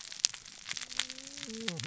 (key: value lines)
label: biophony, cascading saw
recorder: SoundTrap 600 or HydroMoth